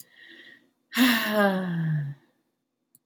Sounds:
Sigh